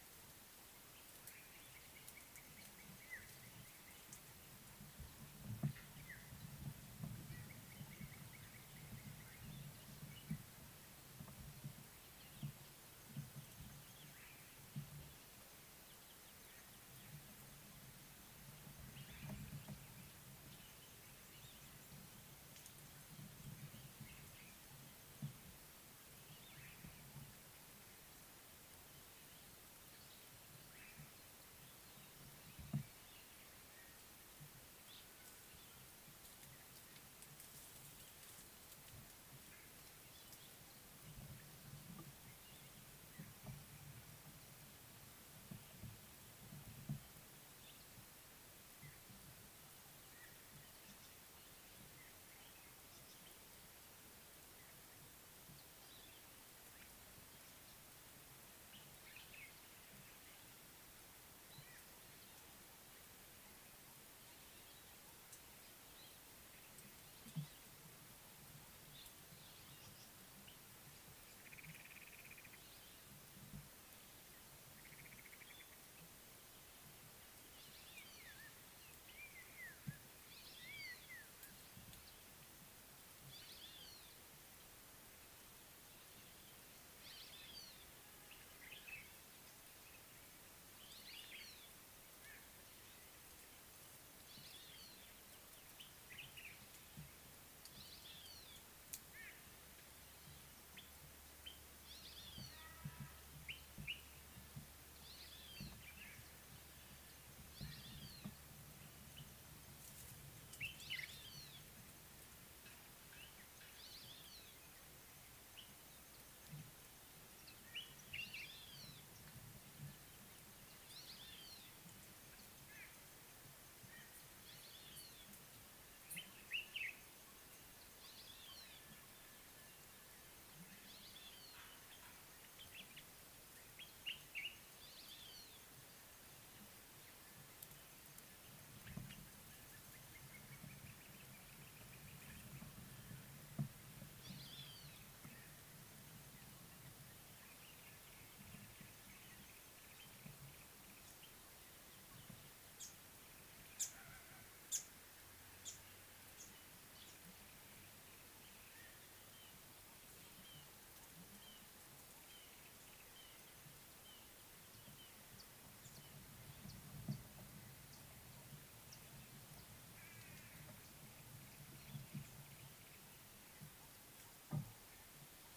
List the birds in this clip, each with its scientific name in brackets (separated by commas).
White-bellied Go-away-bird (Corythaixoides leucogaster), Common Bulbul (Pycnonotus barbatus), Crowned Hornbill (Lophoceros alboterminatus), African Thrush (Turdus pelios), Red-fronted Barbet (Tricholaema diademata), Variable Sunbird (Cinnyris venustus)